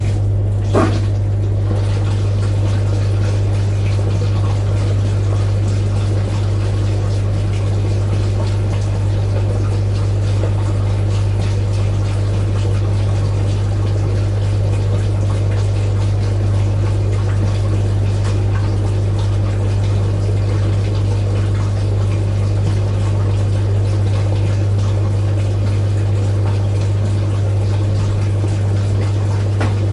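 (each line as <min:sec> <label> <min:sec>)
0:00.0 A washing machine runs continuously. 0:29.9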